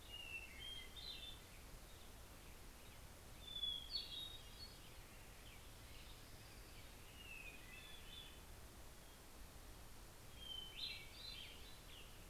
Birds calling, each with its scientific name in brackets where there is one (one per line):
Hermit Thrush (Catharus guttatus)